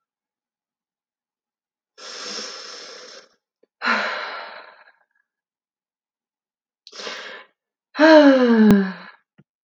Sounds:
Sigh